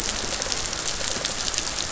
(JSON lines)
{"label": "biophony", "recorder": "SoundTrap 500"}